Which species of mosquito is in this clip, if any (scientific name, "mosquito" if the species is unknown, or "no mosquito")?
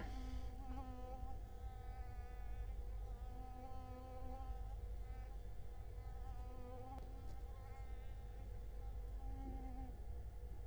Culex quinquefasciatus